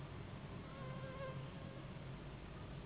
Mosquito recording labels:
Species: Anopheles gambiae s.s.; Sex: female; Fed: unfed; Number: one; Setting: insect culture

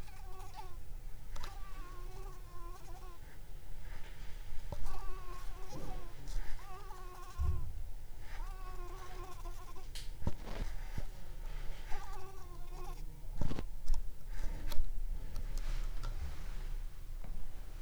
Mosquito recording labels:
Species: Anopheles coustani; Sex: female; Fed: unfed; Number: one; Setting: cup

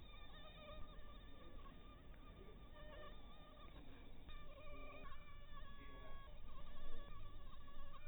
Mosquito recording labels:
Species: mosquito; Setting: cup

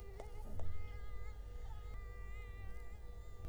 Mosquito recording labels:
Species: Culex quinquefasciatus; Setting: cup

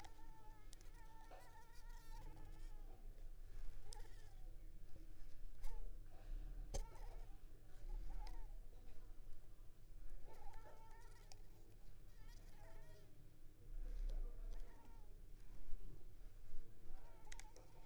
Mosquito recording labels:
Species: Anopheles squamosus; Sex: female; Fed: unfed; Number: one; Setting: cup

